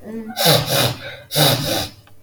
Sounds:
Sniff